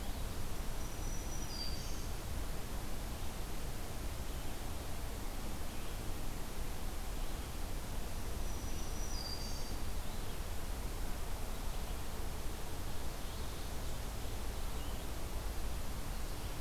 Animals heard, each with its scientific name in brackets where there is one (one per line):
Black-throated Green Warbler (Setophaga virens)